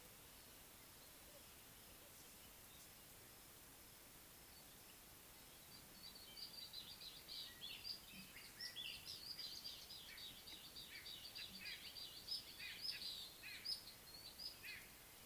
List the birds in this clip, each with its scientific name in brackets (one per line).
White-browed Robin-Chat (Cossypha heuglini)
Little Bee-eater (Merops pusillus)
White-bellied Go-away-bird (Corythaixoides leucogaster)